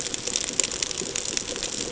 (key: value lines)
label: ambient
recorder: HydroMoth